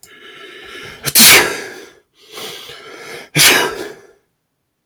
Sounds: Sneeze